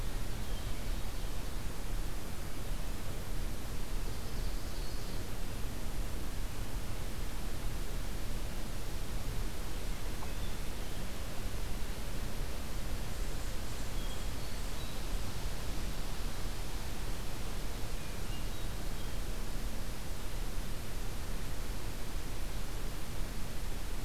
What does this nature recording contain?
Hermit Thrush, Ovenbird